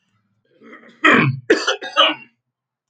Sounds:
Throat clearing